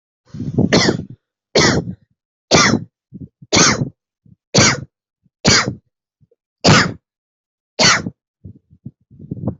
{"expert_labels": [{"quality": "good", "cough_type": "dry", "dyspnea": false, "wheezing": false, "stridor": false, "choking": false, "congestion": false, "nothing": true, "diagnosis": "upper respiratory tract infection", "severity": "mild"}], "age": 24, "gender": "male", "respiratory_condition": false, "fever_muscle_pain": false, "status": "healthy"}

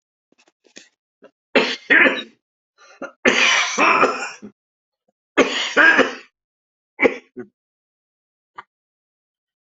{"expert_labels": [{"quality": "ok", "cough_type": "dry", "dyspnea": false, "wheezing": false, "stridor": false, "choking": false, "congestion": false, "nothing": true, "diagnosis": "COVID-19", "severity": "mild"}], "age": 55, "gender": "female", "respiratory_condition": true, "fever_muscle_pain": true, "status": "symptomatic"}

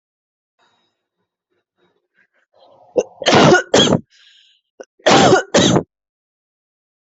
{"expert_labels": [{"quality": "good", "cough_type": "wet", "dyspnea": false, "wheezing": false, "stridor": false, "choking": false, "congestion": false, "nothing": true, "diagnosis": "lower respiratory tract infection", "severity": "mild"}], "age": 32, "gender": "female", "respiratory_condition": false, "fever_muscle_pain": false, "status": "healthy"}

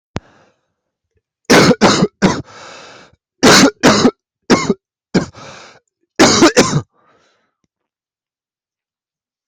{"expert_labels": [{"quality": "good", "cough_type": "dry", "dyspnea": false, "wheezing": false, "stridor": false, "choking": false, "congestion": false, "nothing": true, "diagnosis": "COVID-19", "severity": "severe"}], "age": 30, "gender": "male", "respiratory_condition": false, "fever_muscle_pain": false, "status": "symptomatic"}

